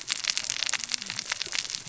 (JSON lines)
{"label": "biophony, cascading saw", "recorder": "SoundTrap 600 or HydroMoth"}